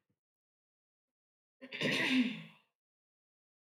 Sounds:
Throat clearing